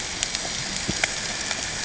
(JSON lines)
{"label": "ambient", "recorder": "HydroMoth"}